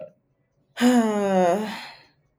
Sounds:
Sigh